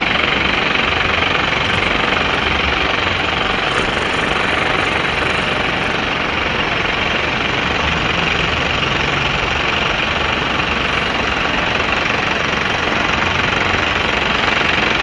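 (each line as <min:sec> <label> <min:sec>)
0:00.0 Construction work with a jackhammer drilling concrete floors continuously. 0:15.0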